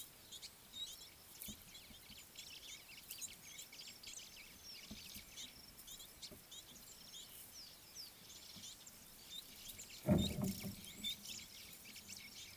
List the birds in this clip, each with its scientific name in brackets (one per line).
Red-billed Firefinch (Lagonosticta senegala)
White-browed Sparrow-Weaver (Plocepasser mahali)